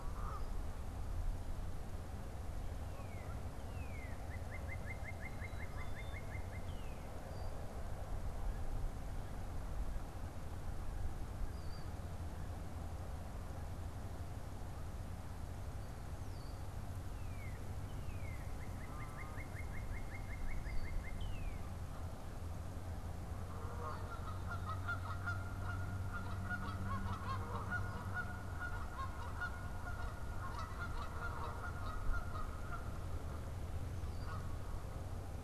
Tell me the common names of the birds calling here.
Canada Goose, Northern Cardinal, Black-capped Chickadee, Red-winged Blackbird